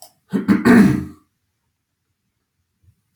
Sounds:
Throat clearing